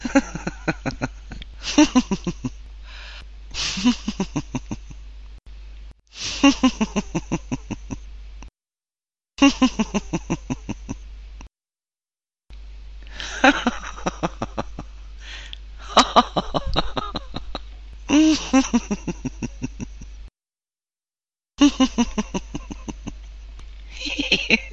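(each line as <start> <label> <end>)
0.0 A person laughs and giggles repeatedly. 5.4
6.1 A person laughs and giggles repeatedly. 8.5
9.3 A person laughs and giggles repeatedly. 11.6
12.5 A person laughs and giggles repeatedly. 20.2
21.6 A person laughs and giggles repeatedly. 24.7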